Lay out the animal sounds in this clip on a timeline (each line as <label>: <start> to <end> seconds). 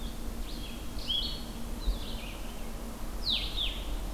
Red-eyed Vireo (Vireo olivaceus): 0.0 to 1.6 seconds
Blue-headed Vireo (Vireo solitarius): 0.0 to 4.1 seconds
Red-eyed Vireo (Vireo olivaceus): 1.9 to 4.1 seconds